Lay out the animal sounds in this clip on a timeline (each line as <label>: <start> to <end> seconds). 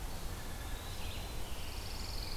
Eastern Wood-Pewee (Contopus virens): 0.0 to 1.5 seconds
Pine Warbler (Setophaga pinus): 1.4 to 2.4 seconds